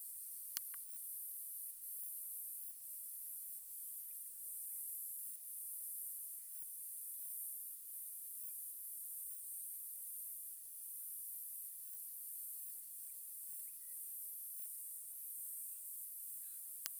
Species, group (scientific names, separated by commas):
Rhacocleis germanica, Orthoptera